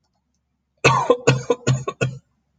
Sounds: Cough